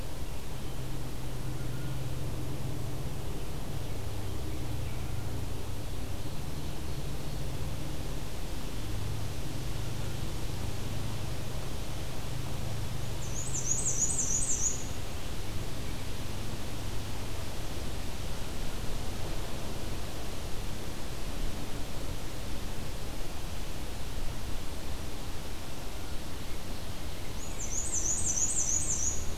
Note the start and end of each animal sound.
[5.44, 7.51] Ovenbird (Seiurus aurocapilla)
[12.92, 15.04] Black-and-white Warbler (Mniotilta varia)
[27.33, 29.37] Black-and-white Warbler (Mniotilta varia)

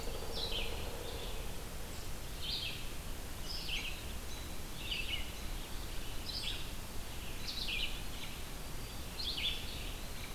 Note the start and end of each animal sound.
[0.00, 1.13] Black-capped Chickadee (Poecile atricapillus)
[0.00, 1.43] Pileated Woodpecker (Dryocopus pileatus)
[0.00, 10.35] American Robin (Turdus migratorius)
[0.00, 10.35] Red-eyed Vireo (Vireo olivaceus)
[9.18, 10.35] Eastern Wood-Pewee (Contopus virens)

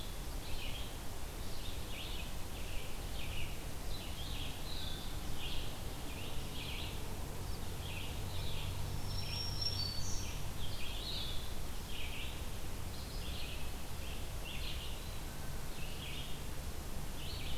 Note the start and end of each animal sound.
[0.00, 17.58] Blue-headed Vireo (Vireo solitarius)
[0.00, 17.58] Red-eyed Vireo (Vireo olivaceus)
[8.65, 10.30] Black-throated Green Warbler (Setophaga virens)

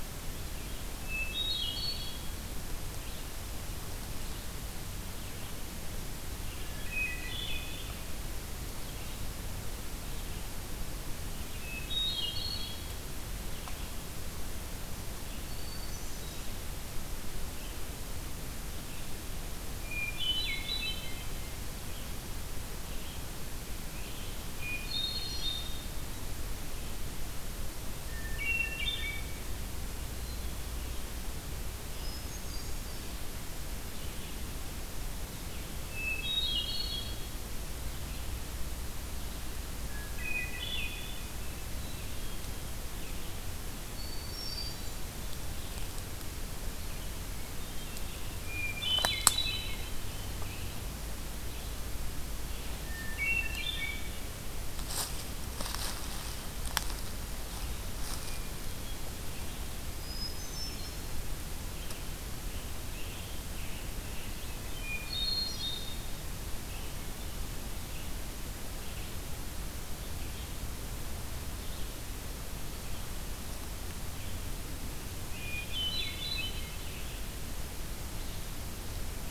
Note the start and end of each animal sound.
[0.81, 2.51] Hermit Thrush (Catharus guttatus)
[6.36, 8.08] Hermit Thrush (Catharus guttatus)
[11.10, 13.51] Hermit Thrush (Catharus guttatus)
[15.32, 16.68] Hermit Thrush (Catharus guttatus)
[19.43, 21.53] Hermit Thrush (Catharus guttatus)
[21.69, 25.63] Scarlet Tanager (Piranga olivacea)
[24.33, 26.17] Hermit Thrush (Catharus guttatus)
[27.56, 30.18] Hermit Thrush (Catharus guttatus)
[31.72, 33.34] Hermit Thrush (Catharus guttatus)
[35.78, 37.88] Hermit Thrush (Catharus guttatus)
[39.87, 42.60] Hermit Thrush (Catharus guttatus)
[43.92, 45.17] Hermit Thrush (Catharus guttatus)
[47.14, 50.42] Hermit Thrush (Catharus guttatus)
[52.74, 54.54] Hermit Thrush (Catharus guttatus)
[58.13, 59.11] Hermit Thrush (Catharus guttatus)
[60.14, 61.14] Hermit Thrush (Catharus guttatus)
[61.66, 64.64] Scarlet Tanager (Piranga olivacea)
[64.48, 66.13] Hermit Thrush (Catharus guttatus)
[66.64, 79.30] Red-eyed Vireo (Vireo olivaceus)
[74.97, 77.13] Hermit Thrush (Catharus guttatus)

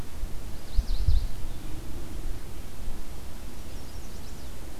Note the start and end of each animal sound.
[0.27, 1.60] Mourning Warbler (Geothlypis philadelphia)
[3.23, 4.62] Chestnut-sided Warbler (Setophaga pensylvanica)

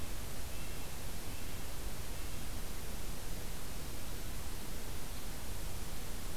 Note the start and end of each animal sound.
[0.34, 2.61] Red-breasted Nuthatch (Sitta canadensis)

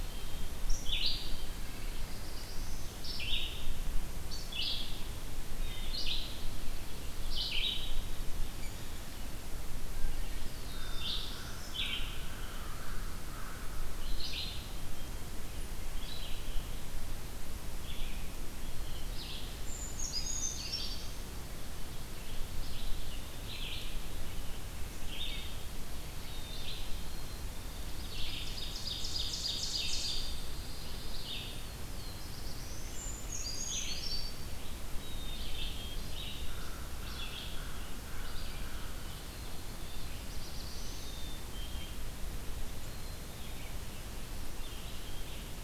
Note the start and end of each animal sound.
[0.00, 0.59] Black-capped Chickadee (Poecile atricapillus)
[0.00, 45.52] Red-eyed Vireo (Vireo olivaceus)
[1.66, 3.11] Black-throated Blue Warbler (Setophaga caerulescens)
[8.57, 8.80] Rose-breasted Grosbeak (Pheucticus ludovicianus)
[9.94, 12.17] Black-throated Blue Warbler (Setophaga caerulescens)
[10.25, 15.61] American Crow (Corvus brachyrhynchos)
[19.39, 21.66] Brown Creeper (Certhia americana)
[20.16, 21.08] Black-capped Chickadee (Poecile atricapillus)
[26.16, 27.95] Black-capped Chickadee (Poecile atricapillus)
[27.81, 30.49] Ovenbird (Seiurus aurocapilla)
[29.71, 31.65] Pine Warbler (Setophaga pinus)
[31.40, 33.36] Black-throated Blue Warbler (Setophaga caerulescens)
[32.62, 34.80] Brown Creeper (Certhia americana)
[34.97, 36.03] Black-capped Chickadee (Poecile atricapillus)
[36.14, 40.27] American Crow (Corvus brachyrhynchos)
[39.65, 41.26] Black-throated Blue Warbler (Setophaga caerulescens)
[41.00, 41.99] Black-capped Chickadee (Poecile atricapillus)
[42.76, 43.75] Black-capped Chickadee (Poecile atricapillus)

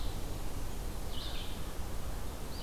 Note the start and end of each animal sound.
[0.00, 2.63] Red-eyed Vireo (Vireo olivaceus)

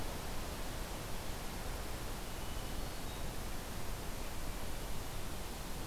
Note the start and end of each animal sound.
[2.27, 3.32] Hermit Thrush (Catharus guttatus)

